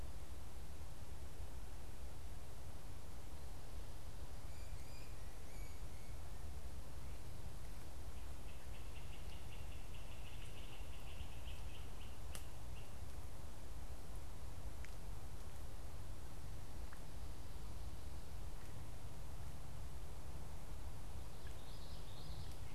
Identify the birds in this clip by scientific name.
Myiarchus crinitus, Geothlypis trichas